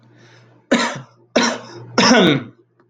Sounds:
Cough